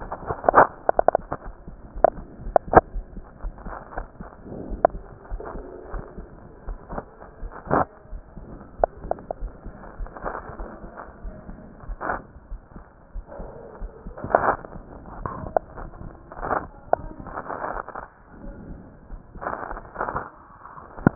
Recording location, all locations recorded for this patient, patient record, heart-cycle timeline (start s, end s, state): aortic valve (AV)
aortic valve (AV)+pulmonary valve (PV)+tricuspid valve (TV)+mitral valve (MV)
#Age: Child
#Sex: Male
#Height: 127.0 cm
#Weight: 26.1 kg
#Pregnancy status: False
#Murmur: Absent
#Murmur locations: nan
#Most audible location: nan
#Systolic murmur timing: nan
#Systolic murmur shape: nan
#Systolic murmur grading: nan
#Systolic murmur pitch: nan
#Systolic murmur quality: nan
#Diastolic murmur timing: nan
#Diastolic murmur shape: nan
#Diastolic murmur grading: nan
#Diastolic murmur pitch: nan
#Diastolic murmur quality: nan
#Outcome: Normal
#Campaign: 2015 screening campaign
0.00	2.91	unannotated
2.91	3.05	S1
3.05	3.13	systole
3.13	3.24	S2
3.24	3.41	diastole
3.41	3.52	S1
3.52	3.64	systole
3.64	3.75	S2
3.75	3.95	diastole
3.95	4.06	S1
4.06	4.19	systole
4.19	4.30	S2
4.30	4.67	diastole
4.67	4.78	S1
4.78	4.91	systole
4.91	5.01	S2
5.01	5.28	diastole
5.28	5.37	S1
5.37	5.54	systole
5.54	5.64	S2
5.64	5.90	diastole
5.90	6.04	S1
6.04	6.14	systole
6.14	6.28	S2
6.28	6.63	diastole
6.63	6.76	S1
6.76	6.90	systole
6.90	7.02	S2
7.02	7.39	diastole
7.39	7.49	S1
7.49	7.65	systole
7.65	7.75	S2
7.75	8.09	diastole
8.09	8.20	S1
8.20	8.35	systole
8.35	8.47	S2
8.47	8.76	diastole
8.76	8.87	S1
8.87	9.01	systole
9.01	9.10	S2
9.10	9.38	diastole
9.38	9.50	S1
9.50	9.63	systole
9.63	9.72	S2
9.72	9.97	diastole
9.97	10.07	S1
10.07	21.15	unannotated